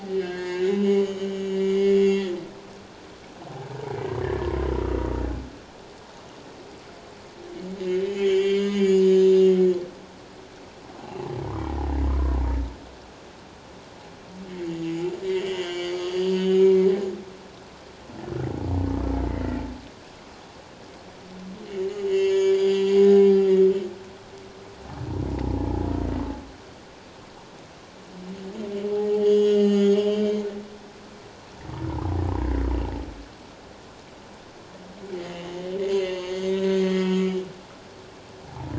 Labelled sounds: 0.0	2.7	humpback whale, 1.6 to 6.8 kHz
4.2	4.7	humpback whale, 1.0 to 1.9 kHz
8.1	9.0	humpback whale, 1.9 to 7.2 kHz
11.0	11.4	humpback whale, 0.78 to 1.1 kHz
15.3	16.8	humpback whale, 1.9 to 6.7 kHz
19.3	19.6	humpback whale, 1.8 to 2.1 kHz
22.0	23.3	humpback whale, 0.78 to 7.1 kHz
29.1	30.4	humpback whale, 1.8 to 6.9 kHz
35.2	37.2	humpback whale, 1.5 to 6.5 kHz
38.4	38.7	humpback whale, 0.78 to 1.0 kHz

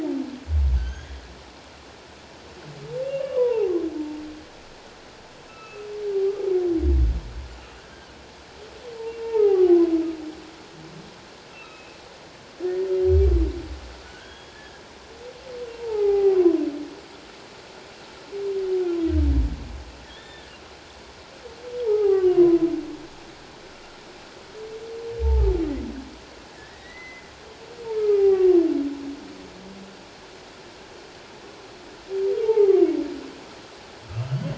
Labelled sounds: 0.8	1.1	humpback whale, 1.4 to 6.7 kHz
3.0	3.7	humpback whale, 0.78 to 3.0 kHz
5.5	6.5	humpback whale, 1.1 to 2.7 kHz
9.2	9.7	humpback whale, 0.78 to 2.2 kHz
11.5	12.0	humpback whale, 2.5 to 2.8 kHz
14.0	14.8	humpback whale, 1.4 to 3.4 kHz
15.8	16.5	humpback whale, 0.78 to 2.2 kHz
20.0	20.5	humpback whale, 1.7 to 3.7 kHz
21.9	22.6	humpback whale, 0.78 to 3.0 kHz
25.2	25.5	humpback whale, 0.81 to 0.94 kHz
26.7	28.6	humpback whale, 0.78 to 6.2 kHz
32.4	32.8	humpback whale, 0.78 to 0.97 kHz

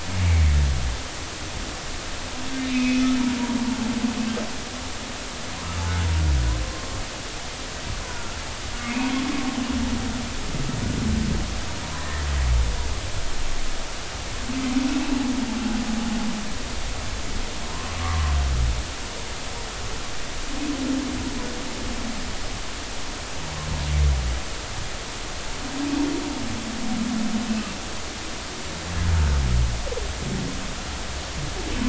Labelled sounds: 0.2	0.5	humpback whale, 2.0 to 2.4 kHz
2.7	3.0	humpback whale, 2.1 to 2.6 kHz
8.0	9.1	humpback whale, 0.90 to 2.7 kHz
12.0	12.3	humpback whale, 1.8 to 2.0 kHz
18.0	18.3	humpback whale, 0.96 to 1.2 kHz

